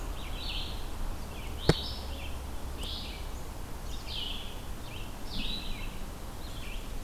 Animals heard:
Red-eyed Vireo (Vireo olivaceus)

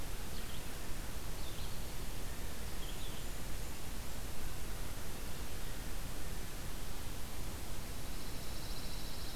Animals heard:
Blackburnian Warbler (Setophaga fusca)
Red-eyed Vireo (Vireo olivaceus)
Pine Warbler (Setophaga pinus)

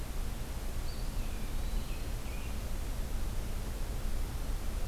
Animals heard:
American Robin (Turdus migratorius)
Eastern Wood-Pewee (Contopus virens)

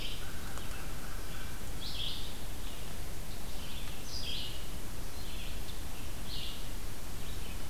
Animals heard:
Red-eyed Vireo (Vireo olivaceus)
American Crow (Corvus brachyrhynchos)

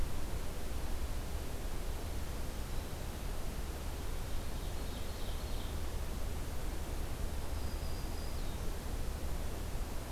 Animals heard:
Ovenbird (Seiurus aurocapilla)
Black-throated Green Warbler (Setophaga virens)

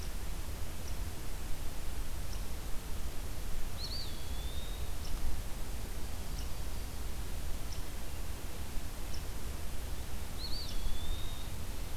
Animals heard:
Eastern Wood-Pewee (Contopus virens)

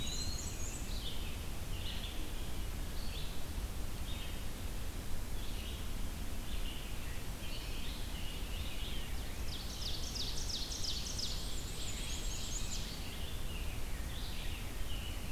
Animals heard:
Ovenbird (Seiurus aurocapilla)
Black-and-white Warbler (Mniotilta varia)
Red-eyed Vireo (Vireo olivaceus)
Eastern Wood-Pewee (Contopus virens)

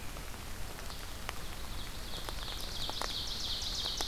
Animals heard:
Ovenbird (Seiurus aurocapilla)

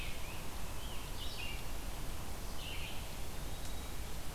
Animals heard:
Scarlet Tanager (Piranga olivacea)
Eastern Wood-Pewee (Contopus virens)
Red-eyed Vireo (Vireo olivaceus)

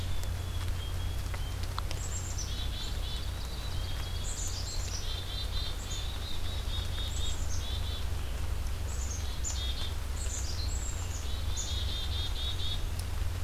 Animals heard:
Ovenbird (Seiurus aurocapilla)
Black-capped Chickadee (Poecile atricapillus)

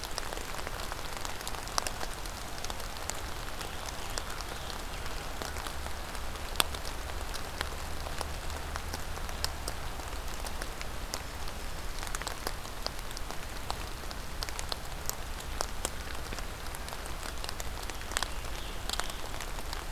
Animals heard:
Black-throated Green Warbler (Setophaga virens)
Scarlet Tanager (Piranga olivacea)

